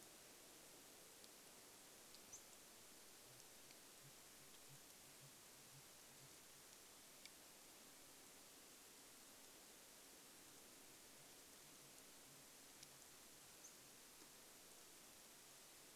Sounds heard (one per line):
unidentified bird chip note
Sooty Grouse song